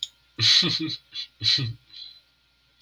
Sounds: Laughter